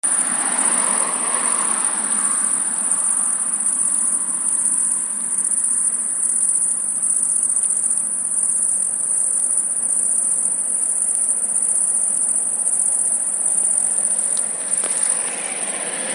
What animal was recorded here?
Tettigonia viridissima, an orthopteran